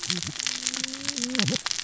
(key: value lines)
label: biophony, cascading saw
recorder: SoundTrap 600 or HydroMoth